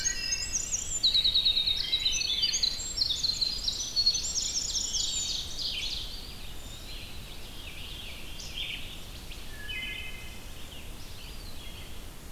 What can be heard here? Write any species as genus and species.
Hylocichla mustelina, Troglodytes hiemalis, Vireo olivaceus, Seiurus aurocapilla, Contopus virens